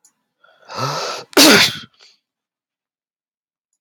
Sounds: Sneeze